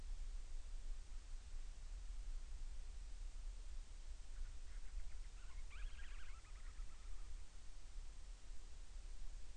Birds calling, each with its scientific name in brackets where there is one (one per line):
Band-rumped Storm-Petrel (Hydrobates castro)